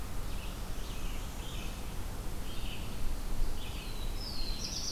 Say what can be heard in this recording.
Red-eyed Vireo, Northern Parula, Black-throated Blue Warbler